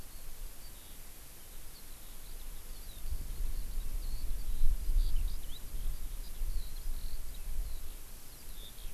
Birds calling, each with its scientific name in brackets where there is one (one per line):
Eurasian Skylark (Alauda arvensis)